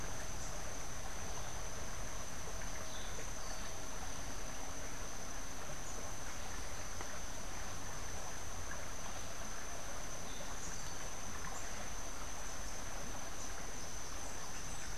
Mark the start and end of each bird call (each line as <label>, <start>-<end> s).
Orange-billed Nightingale-Thrush (Catharus aurantiirostris), 2.9-3.9 s
Orange-billed Nightingale-Thrush (Catharus aurantiirostris), 10.3-11.2 s